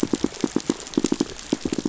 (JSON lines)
{"label": "biophony, pulse", "recorder": "SoundTrap 500"}